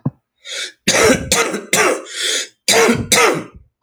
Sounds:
Cough